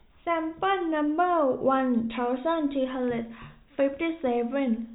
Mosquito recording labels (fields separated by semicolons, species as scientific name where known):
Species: no mosquito; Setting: cup